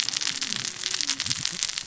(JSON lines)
{"label": "biophony, cascading saw", "recorder": "SoundTrap 600 or HydroMoth"}